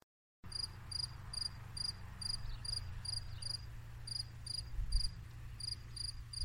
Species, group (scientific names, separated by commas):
Gryllus campestris, Orthoptera